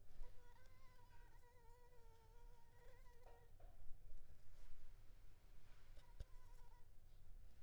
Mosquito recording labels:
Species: Anopheles arabiensis; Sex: female; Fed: unfed; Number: one; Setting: cup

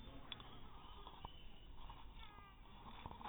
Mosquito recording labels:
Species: mosquito; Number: one; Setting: cup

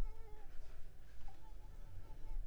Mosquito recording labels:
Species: Culex pipiens complex; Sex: female; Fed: unfed; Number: one; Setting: cup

